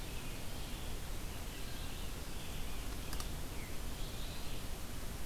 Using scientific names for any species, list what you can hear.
Turdus migratorius, Vireo olivaceus